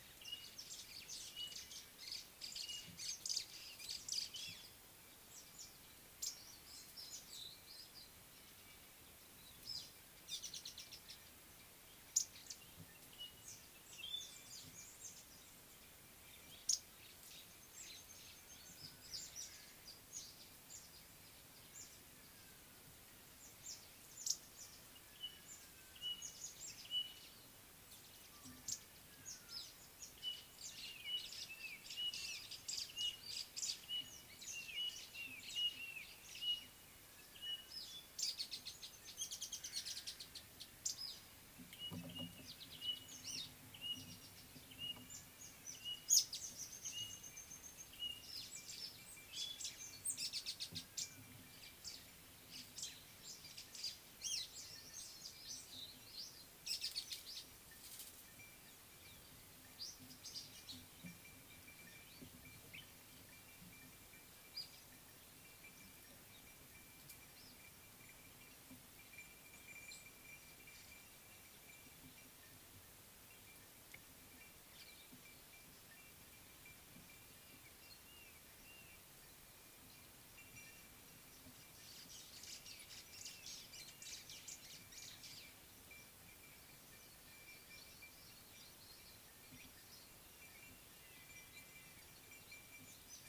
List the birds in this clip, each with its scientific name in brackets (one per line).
Speckled Mousebird (Colius striatus)
Spotted Morning-Thrush (Cichladusa guttata)
White-browed Robin-Chat (Cossypha heuglini)
White-browed Sparrow-Weaver (Plocepasser mahali)
Red-faced Crombec (Sylvietta whytii)